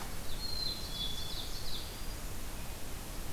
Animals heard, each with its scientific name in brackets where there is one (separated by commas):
Ovenbird (Seiurus aurocapilla), Black-capped Chickadee (Poecile atricapillus)